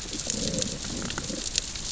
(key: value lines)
label: biophony, growl
recorder: SoundTrap 600 or HydroMoth